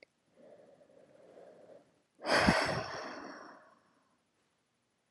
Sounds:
Sigh